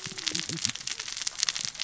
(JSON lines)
{"label": "biophony, cascading saw", "recorder": "SoundTrap 600 or HydroMoth"}